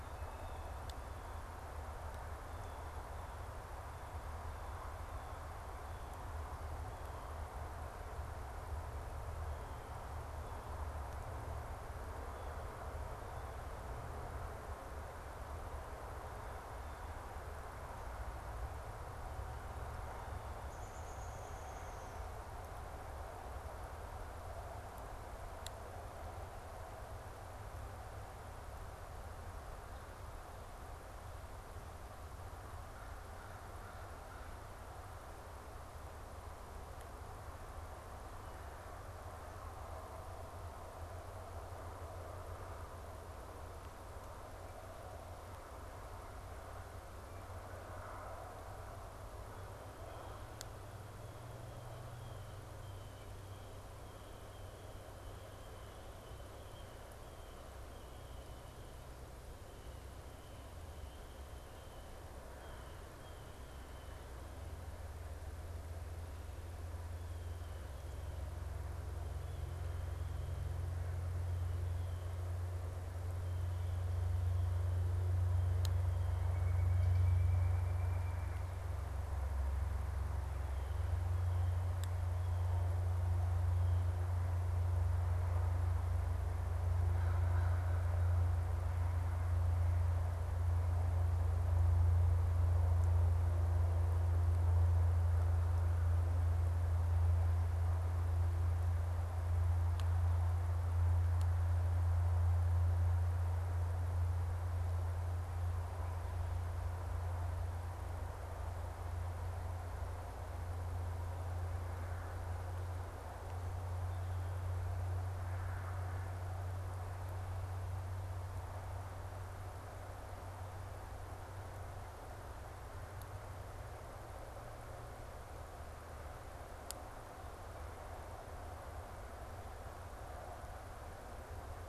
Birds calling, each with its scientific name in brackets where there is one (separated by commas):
Downy Woodpecker (Dryobates pubescens), Blue Jay (Cyanocitta cristata), Pileated Woodpecker (Dryocopus pileatus)